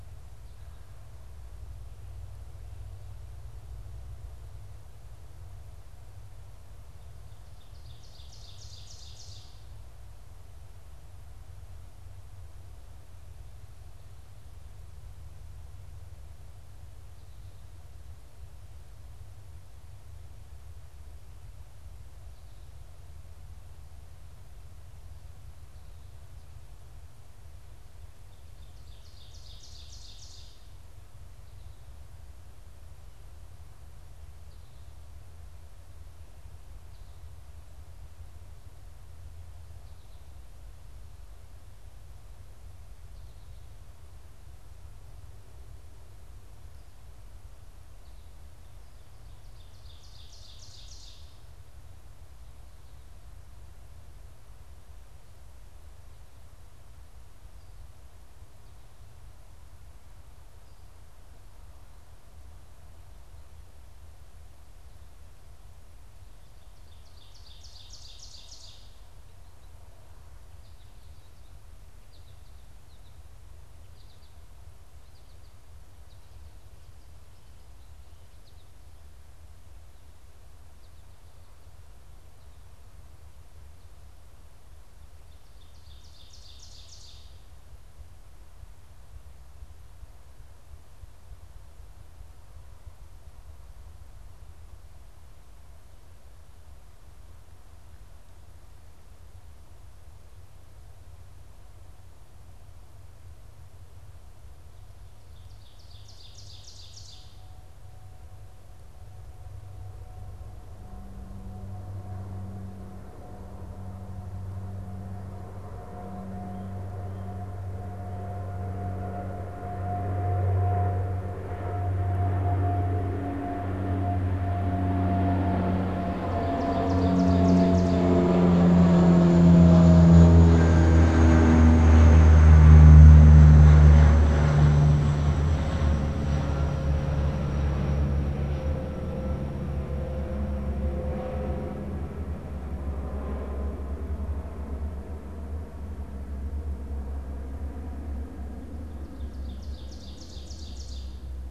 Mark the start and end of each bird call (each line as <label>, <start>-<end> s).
Ovenbird (Seiurus aurocapilla), 7.4-9.8 s
Ovenbird (Seiurus aurocapilla), 27.9-30.9 s
Ovenbird (Seiurus aurocapilla), 49.3-51.6 s
Ovenbird (Seiurus aurocapilla), 66.2-69.3 s
American Goldfinch (Spinus tristis), 70.5-76.7 s
American Goldfinch (Spinus tristis), 78.2-81.5 s
Ovenbird (Seiurus aurocapilla), 84.9-87.8 s
Ovenbird (Seiurus aurocapilla), 105.1-107.9 s
Ovenbird (Seiurus aurocapilla), 125.9-128.4 s
Ovenbird (Seiurus aurocapilla), 149.1-151.5 s